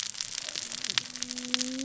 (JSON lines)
{"label": "biophony, cascading saw", "recorder": "SoundTrap 600 or HydroMoth"}